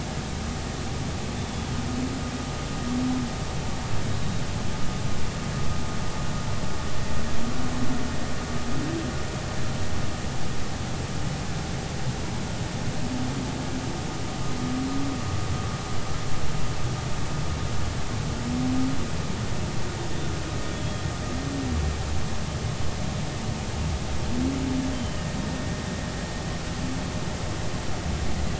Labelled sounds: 1.4	1.7	humpback whale, 3.3 to 3.6 kHz
24.9	25.2	humpback whale, 3.0 to 3.2 kHz

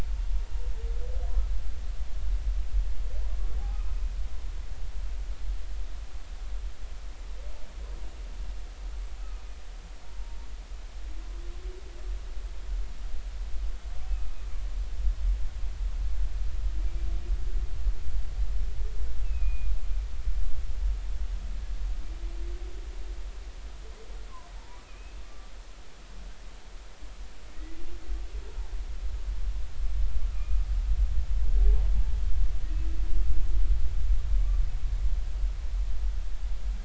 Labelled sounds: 9.2	9.6	humpback whale, 1.2 to 2.6 kHz
19.2	19.7	humpback whale, 2.4 to 2.8 kHz
24.8	25.5	humpback whale, 1.1 to 2.7 kHz
27.5	27.8	humpback whale, 1.8 to 2.0 kHz
30.3	30.6	humpback whale, 1.1 to 2.6 kHz

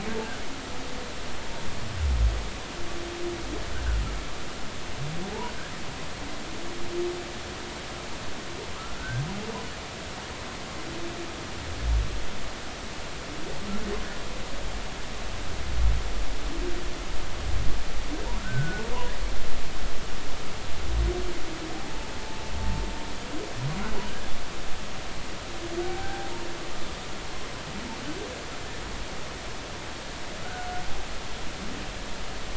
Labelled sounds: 8.7	9.2	humpback whale, 1.1 to 1.6 kHz
18.4	18.8	humpback whale, 1.3 to 1.6 kHz
21.7	22.1	humpback whale, 0.80 to 0.96 kHz
25.8	26.3	humpback whale, 0.80 to 1.7 kHz

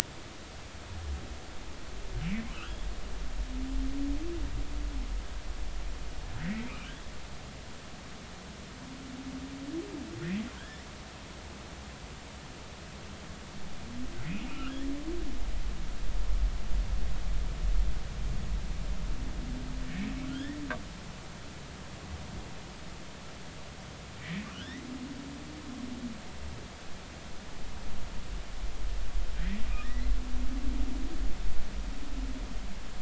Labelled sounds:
2.5	2.8	humpback whale, 2.5 to 3.4 kHz
6.4	6.7	humpback whale, 1.8 to 2.0 kHz
10.6	10.9	humpback whale, 1.4 to 2.0 kHz
14.3	14.8	humpback whale, 1.2 to 2.8 kHz
20.3	20.6	humpback whale, 1.3 to 3.6 kHz
24.2	24.9	humpback whale, 1.3 to 3.9 kHz
29.3	30.1	humpback whale, 1.2 to 2.1 kHz

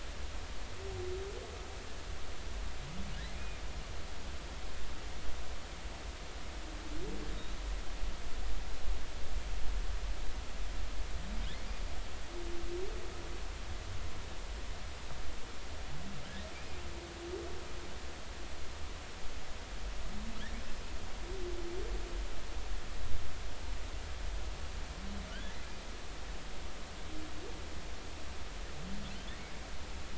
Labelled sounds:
3.4	3.6	humpback whale, 2.4 to 2.5 kHz
7.3	7.6	humpback whale, 3.7 to 4.0 kHz
16.5	16.8	humpback whale, 2.3 to 2.5 kHz

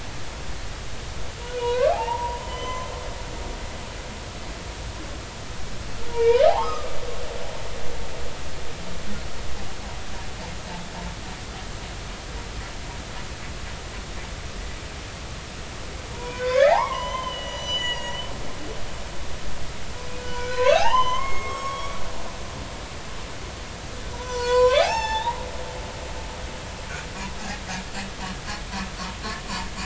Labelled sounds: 1.5	2.9	humpback whale, 0.80 to 3.1 kHz
6.1	6.9	humpback whale, 0.80 to 5.2 kHz
16.1	18.2	humpback whale, 0.80 to 8.0 kHz
20.2	22.0	humpback whale, 0.80 to 6.3 kHz
24.1	25.4	humpback whale, 0.80 to 7.6 kHz

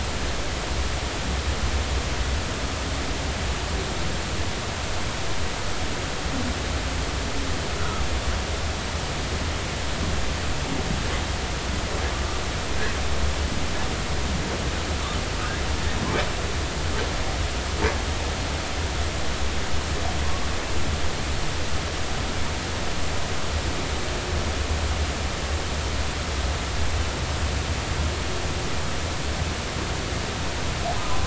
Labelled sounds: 7.8	8.1	humpback whale, 1.1 to 1.5 kHz
31.0	31.2	humpback whale, 0.93 to 1.1 kHz

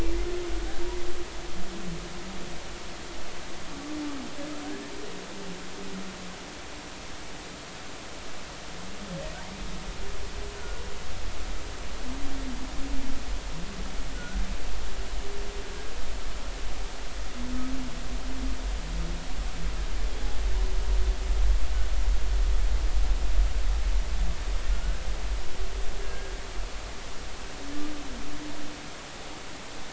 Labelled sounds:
4.6	4.9	humpback whale, 1.5 to 1.9 kHz
10.6	10.8	humpback whale, 1.4 to 1.5 kHz
14.1	14.4	humpback whale, 1.3 to 1.6 kHz
24.7	25.0	humpback whale, 1.3 to 1.6 kHz
26.0	26.3	humpback whale, 1.6 to 1.7 kHz

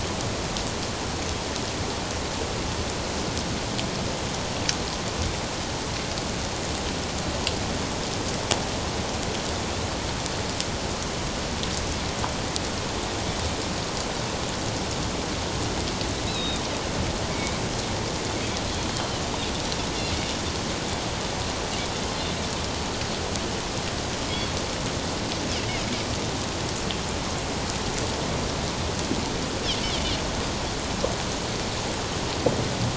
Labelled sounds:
16.3	16.6	Pacific white-sided dolphin, 3.6 to 4.1 kHz
17.3	17.6	Pacific white-sided dolphin, 2.2 to 2.4 kHz
18.9	19.2	Pacific white-sided dolphin, 2.9 to 3.2 kHz

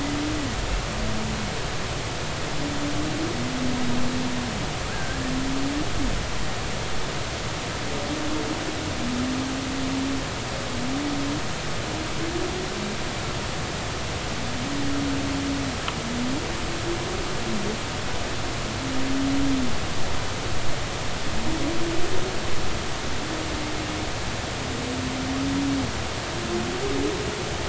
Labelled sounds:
4.9	5.2	humpback whale, 1.4 to 1.7 kHz

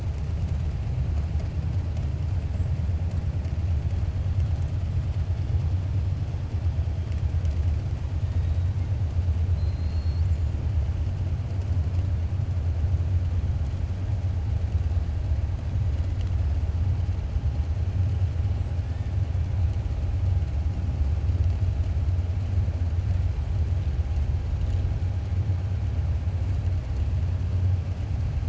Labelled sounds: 9.5	10.3	killer whale, 3.9 to 5.5 kHz

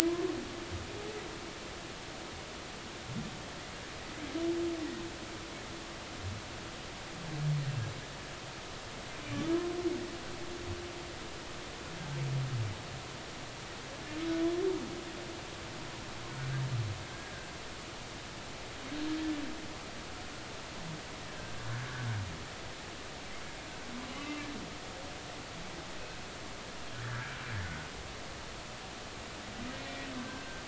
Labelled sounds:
0.1	0.3	humpback whale, 0.99 to 1.1 kHz
17.1	17.3	humpback whale, 1.5 to 1.7 kHz
21.3	21.5	humpback whale, 1.5 to 1.8 kHz
24.2	24.4	humpback whale, 2.6 to 2.8 kHz
28.0	28.3	humpback whale, 1.4 to 1.8 kHz

